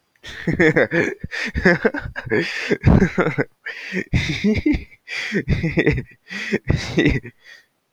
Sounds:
Laughter